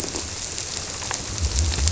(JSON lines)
{"label": "biophony", "recorder": "SoundTrap 300"}